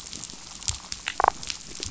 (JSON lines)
{"label": "biophony, damselfish", "recorder": "SoundTrap 500"}